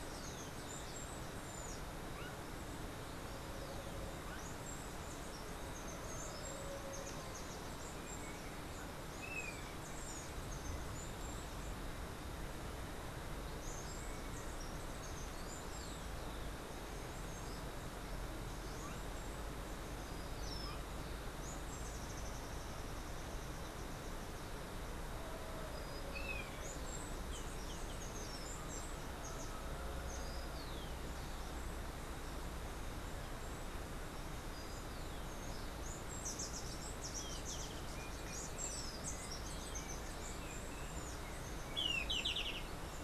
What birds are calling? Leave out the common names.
Saucerottia saucerottei, Zimmerius chrysops, unidentified bird